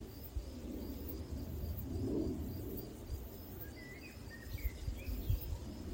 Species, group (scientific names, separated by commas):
Cicadetta cantilatrix, Cicadidae